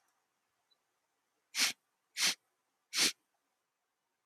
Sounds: Sniff